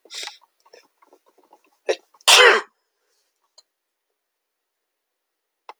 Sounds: Sneeze